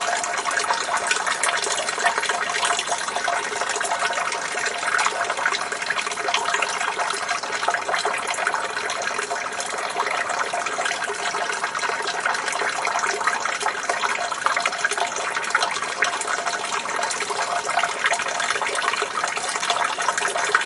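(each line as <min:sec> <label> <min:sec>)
0:00.0 Water fills a bathtub with a constant, echoing sound. 0:20.7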